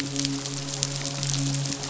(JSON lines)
{"label": "biophony, midshipman", "recorder": "SoundTrap 500"}